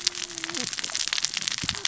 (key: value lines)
label: biophony, cascading saw
recorder: SoundTrap 600 or HydroMoth